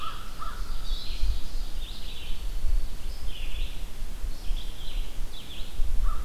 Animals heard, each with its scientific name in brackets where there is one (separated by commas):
Red-eyed Vireo (Vireo olivaceus), Ovenbird (Seiurus aurocapilla), American Crow (Corvus brachyrhynchos), Black-throated Green Warbler (Setophaga virens)